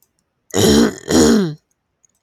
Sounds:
Throat clearing